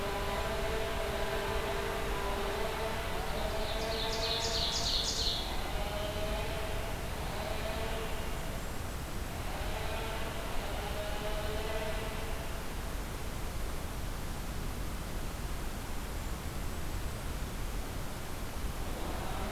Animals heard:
Ovenbird (Seiurus aurocapilla), Golden-crowned Kinglet (Regulus satrapa)

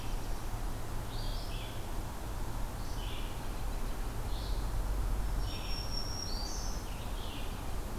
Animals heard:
Red-eyed Vireo (Vireo olivaceus), Black-throated Green Warbler (Setophaga virens), Black-throated Blue Warbler (Setophaga caerulescens)

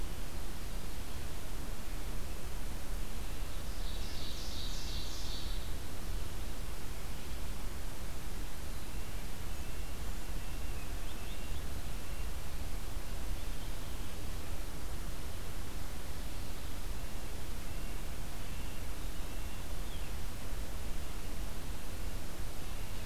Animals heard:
Ovenbird (Seiurus aurocapilla), Red-breasted Nuthatch (Sitta canadensis)

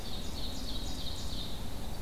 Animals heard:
Winter Wren (Troglodytes hiemalis), Ovenbird (Seiurus aurocapilla)

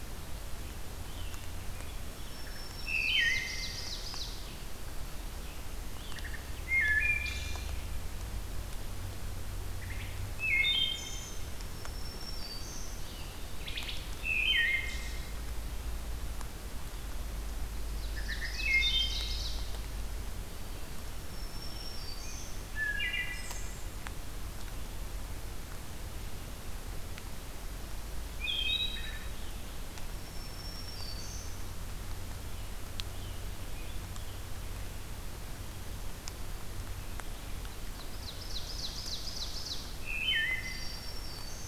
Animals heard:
Black-throated Green Warbler (Setophaga virens), Ovenbird (Seiurus aurocapilla), Wood Thrush (Hylocichla mustelina)

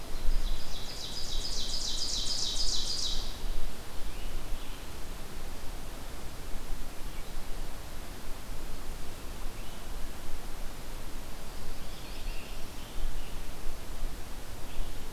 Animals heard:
Ovenbird (Seiurus aurocapilla), Scarlet Tanager (Piranga olivacea)

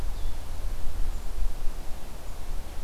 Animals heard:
Blue-headed Vireo (Vireo solitarius)

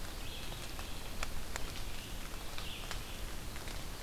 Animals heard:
Red-eyed Vireo (Vireo olivaceus)

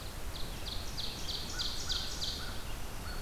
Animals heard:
Black-throated Green Warbler (Setophaga virens), American Crow (Corvus brachyrhynchos), Red-eyed Vireo (Vireo olivaceus), Ovenbird (Seiurus aurocapilla)

